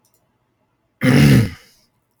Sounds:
Throat clearing